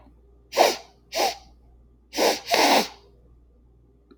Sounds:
Sniff